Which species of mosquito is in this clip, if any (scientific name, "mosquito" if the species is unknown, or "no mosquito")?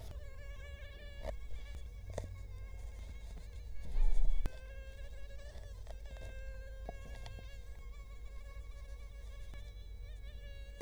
Culex quinquefasciatus